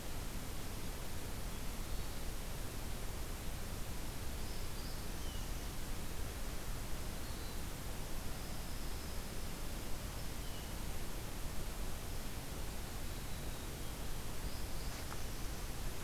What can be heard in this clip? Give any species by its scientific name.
Catharus guttatus, Setophaga caerulescens, Setophaga pinus